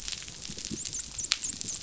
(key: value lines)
label: biophony, dolphin
recorder: SoundTrap 500